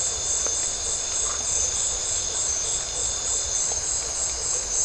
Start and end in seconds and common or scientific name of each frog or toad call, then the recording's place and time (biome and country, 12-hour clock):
1.2	1.5	Phyllomedusa distincta
Atlantic Forest, Brazil, 11:15pm